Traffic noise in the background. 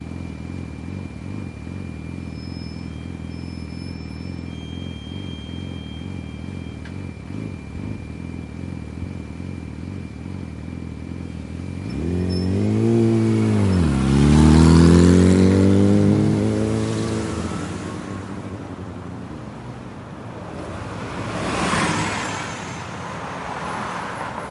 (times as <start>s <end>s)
18.0s 24.5s